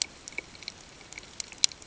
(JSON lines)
{"label": "ambient", "recorder": "HydroMoth"}